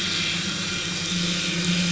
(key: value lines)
label: anthrophony, boat engine
recorder: SoundTrap 500